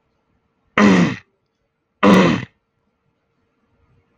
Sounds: Throat clearing